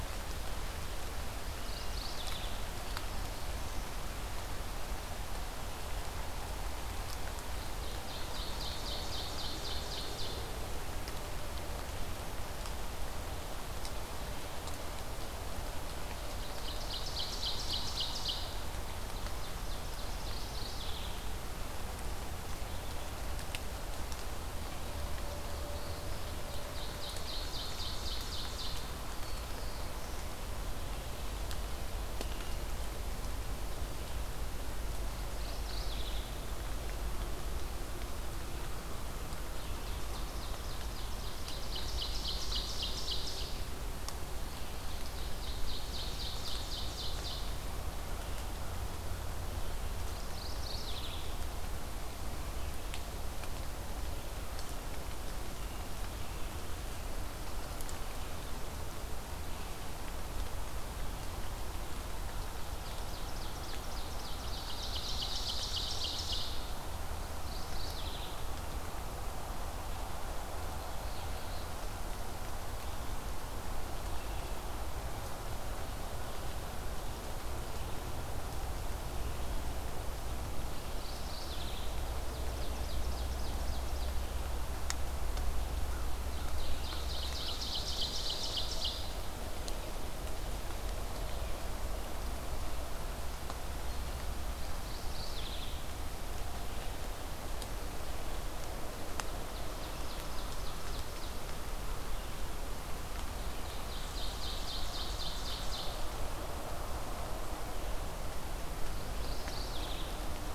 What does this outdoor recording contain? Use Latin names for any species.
Geothlypis philadelphia, Seiurus aurocapilla, Setophaga caerulescens, Corvus brachyrhynchos